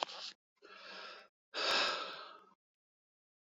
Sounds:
Sigh